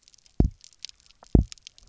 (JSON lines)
{"label": "biophony, double pulse", "recorder": "SoundTrap 300"}